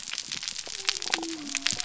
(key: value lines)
label: biophony
recorder: SoundTrap 300